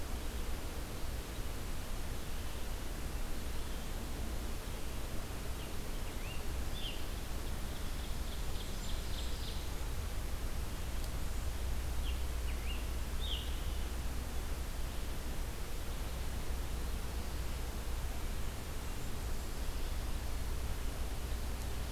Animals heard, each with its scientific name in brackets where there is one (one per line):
Ovenbird (Seiurus aurocapilla)
Blackburnian Warbler (Setophaga fusca)
Scarlet Tanager (Piranga olivacea)